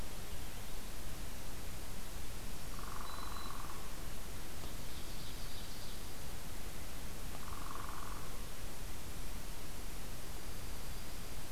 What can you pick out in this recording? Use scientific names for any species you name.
Setophaga virens, Colaptes auratus, Seiurus aurocapilla, Junco hyemalis